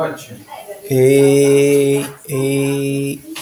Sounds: Cough